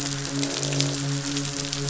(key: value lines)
label: biophony, croak
recorder: SoundTrap 500

label: biophony, midshipman
recorder: SoundTrap 500